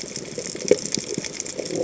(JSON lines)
{"label": "biophony", "recorder": "HydroMoth"}